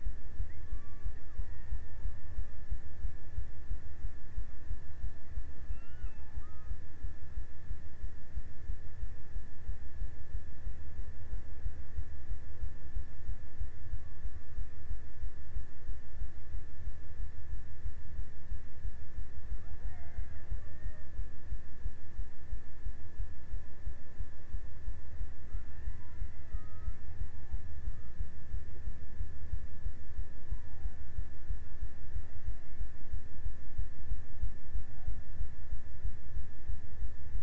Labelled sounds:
0.1	2.7	killer whale, Bigg's (transient), 0.55 to 2.4 kHz
5.2	7.7	killer whale, Bigg's (transient), 0.61 to 3.0 kHz
19.1	21.7	killer whale, Bigg's (transient), 0.31 to 2.6 kHz
25.7	27.5	killer whale, Bigg's (transient), 0.58 to 2.5 kHz

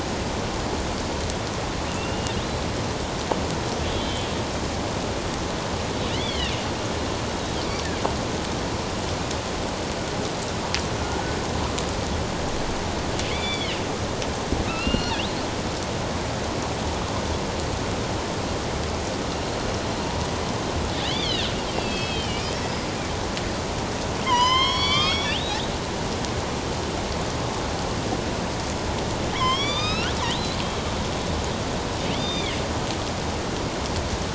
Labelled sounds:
1.9	2.4	killer whale, northern resident, A clan, AB subclan, 2.6 to 2.9 kHz
3.9	4.3	killer whale, northern resident, A clan, AB subclan, 3.0 to 4.0 kHz
6.1	6.5	killer whale, northern resident, A clan, AB subclan, 1.8 to 3.6 kHz
13.3	13.9	killer whale, northern resident, A clan, AB subclan, 1.9 to 4.8 kHz
14.7	15.2	killer whale, northern resident, A clan, AB subclan, 1.2 to 5.8 kHz
21.1	22.5	killer whale, northern resident, A clan, AB subclan, 2.2 to 4.8 kHz
24.3	25.4	killer whale, northern resident, A clan, AB subclan, 0.91 to 7.4 kHz
29.3	30.1	killer whale, northern resident, A clan, AB subclan, 0.97 to 6.4 kHz
32.1	32.6	killer whale, northern resident, A clan, AB subclan, 2.1 to 6.1 kHz

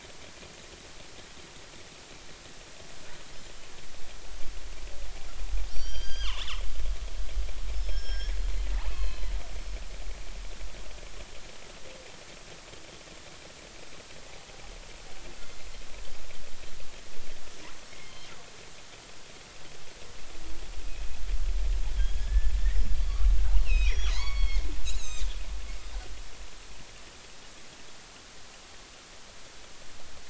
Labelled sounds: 5.7	6.6	killer whale, northern resident, G clan, 0.86 to 8.0 kHz
7.7	8.3	killer whale, northern resident, G clan, 1.5 to 5.6 kHz
8.8	9.3	killer whale, northern resident, G clan, 0.80 to 4.4 kHz
17.8	18.3	killer whale, northern resident, G clan, 3.1 to 5.5 kHz
22.0	22.5	killer whale, northern resident, G clan, 1.5 to 6.7 kHz
23.0	23.2	killer whale, northern resident, G clan, 4.4 to 4.7 kHz
23.6	25.4	killer whale, northern resident, G clan, 0.80 to 8.0 kHz

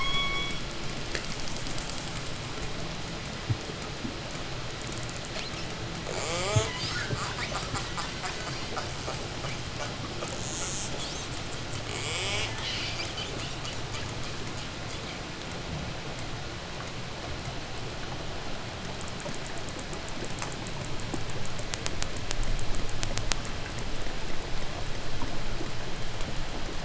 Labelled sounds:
5.8	14.5	killer whale, 0.17 to 8.0 kHz

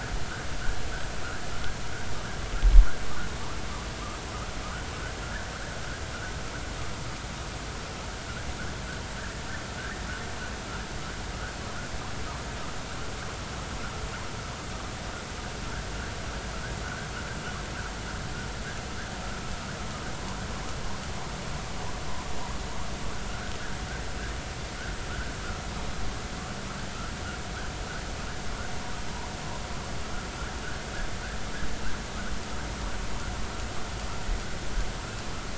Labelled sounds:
23.3	23.5	vessel noise, 1.3 to 1.7 kHz

